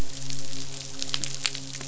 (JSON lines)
{"label": "biophony, midshipman", "recorder": "SoundTrap 500"}